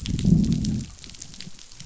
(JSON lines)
{"label": "biophony, growl", "recorder": "SoundTrap 500"}